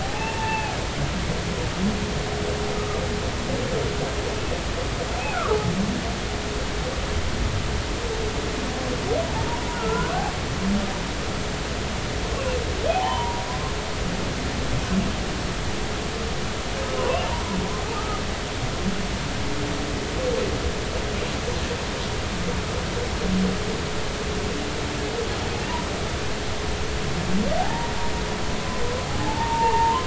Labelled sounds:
0.0	0.7	humpback whale, 0.80 to 2.8 kHz
9.7	10.1	humpback whale, 1.3 to 1.5 kHz
12.9	13.4	humpback whale, 0.80 to 3.1 kHz
17.0	17.3	humpback whale, 0.93 to 3.1 kHz
17.9	18.2	humpback whale, 1.2 to 1.4 kHz
27.6	27.9	humpback whale, 0.80 to 0.99 kHz
29.2	30.0	humpback whale, 0.80 to 1.1 kHz

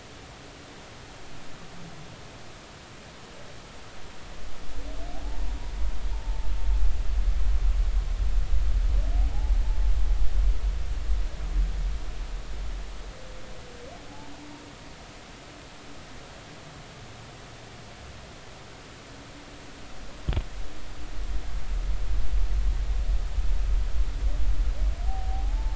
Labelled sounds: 5.2	5.6	humpback whale, 0.80 to 0.99 kHz
6.2	6.5	humpback whale, 0.83 to 0.93 kHz
25.1	25.7	humpback whale, 0.80 to 0.93 kHz

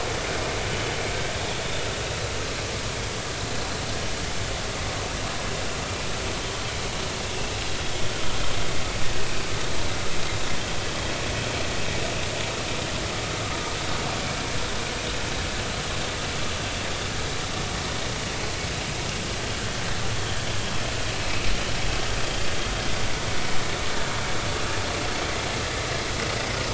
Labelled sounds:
21.2	21.5	vessel noise, 2.5 to 2.6 kHz

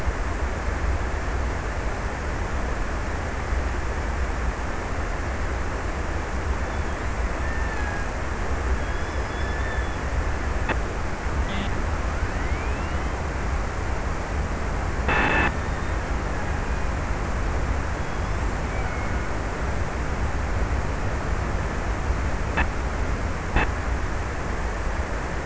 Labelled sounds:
6.8	8.4	killer whale, Bigg's (transient), 0.48 to 2.0 kHz
18.3	19.8	killer whale, Bigg's (transient), 1.1 to 2.5 kHz

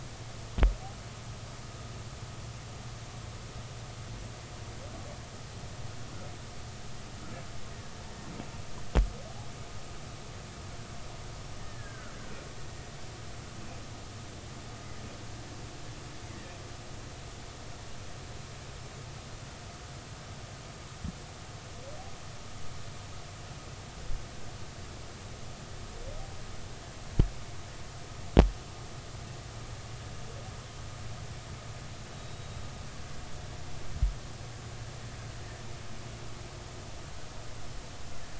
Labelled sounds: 11.6	12.2	killer whale, Bigg's (transient), 1.3 to 1.9 kHz
32.1	32.5	killer whale, Bigg's (transient), 3.7 to 3.9 kHz

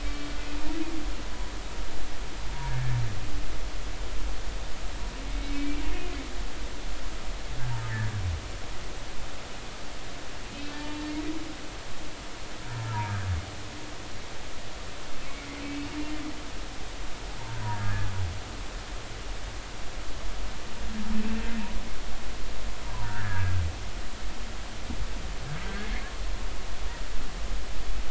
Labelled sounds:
0.0	0.4	humpback whale, 2.2 to 4.4 kHz
5.3	5.8	humpback whale, 2.2 to 2.4 kHz
10.5	11.1	humpback whale, 0.86 to 2.7 kHz
15.6	15.9	humpback whale, 2.5 to 2.7 kHz
17.6	18.1	humpback whale, 1.6 to 1.8 kHz
21.2	21.4	humpback whale, 2.6 to 2.7 kHz
22.9	23.5	humpback whale, 0.90 to 1.9 kHz

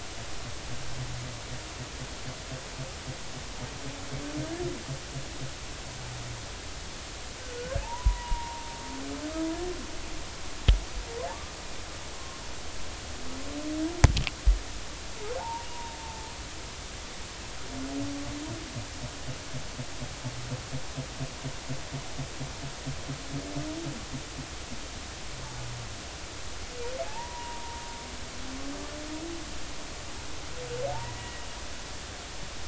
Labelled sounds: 7.6	8.7	humpback whale, 0.83 to 1.7 kHz
15.4	16.3	humpback whale, 0.80 to 1.0 kHz
27.1	27.8	humpback whale, 0.80 to 1.1 kHz
30.9	31.4	humpback whale, 0.80 to 2.0 kHz

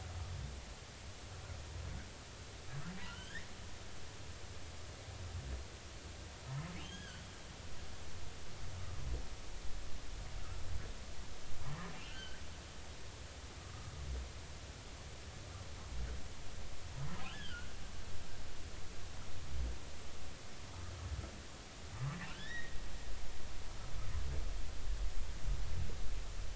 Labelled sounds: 3.1	3.5	humpback whale, 1.3 to 3.3 kHz
6.8	7.2	humpback whale, 1.4 to 3.4 kHz
11.9	12.4	humpback whale, 1.3 to 3.2 kHz
17.3	17.7	humpback whale, 1.3 to 3.5 kHz
22.3	22.8	humpback whale, 1.3 to 3.9 kHz

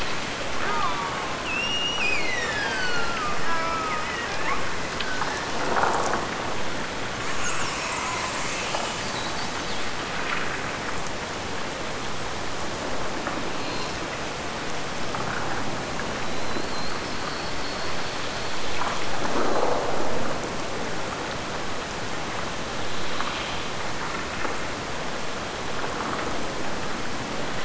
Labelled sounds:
0.5	4.4	killer whale, Bigg's (transient), Gulf of Alaska transient, 0.41 to 8.0 kHz

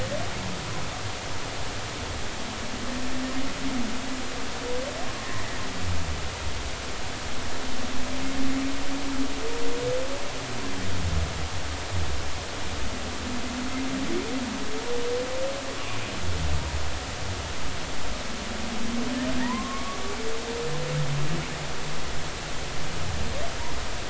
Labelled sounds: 5.1	5.4	humpback whale, 0.93 to 1.1 kHz
19.4	20.0	humpback whale, 0.90 to 1.2 kHz

